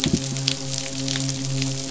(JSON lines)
{"label": "biophony, midshipman", "recorder": "SoundTrap 500"}
{"label": "biophony", "recorder": "SoundTrap 500"}